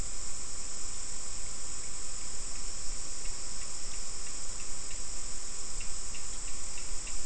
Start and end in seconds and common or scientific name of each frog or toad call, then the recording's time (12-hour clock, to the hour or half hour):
1.4	7.2	Cochran's lime tree frog
~5pm